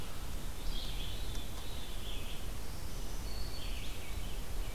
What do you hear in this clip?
Red-eyed Vireo, Veery, Black-throated Green Warbler